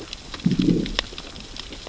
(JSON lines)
{"label": "biophony, growl", "recorder": "SoundTrap 600 or HydroMoth"}